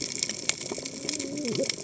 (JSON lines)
{"label": "biophony, cascading saw", "recorder": "HydroMoth"}